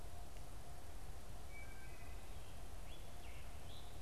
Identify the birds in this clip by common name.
Wood Thrush, Scarlet Tanager